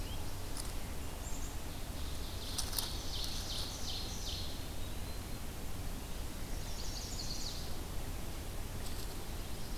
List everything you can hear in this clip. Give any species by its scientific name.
Poecile atricapillus, Seiurus aurocapilla, Contopus virens, Setophaga pensylvanica